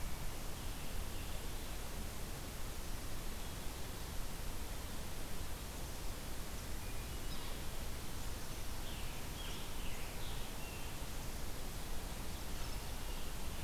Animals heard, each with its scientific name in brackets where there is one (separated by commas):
Scarlet Tanager (Piranga olivacea), Yellow-bellied Sapsucker (Sphyrapicus varius)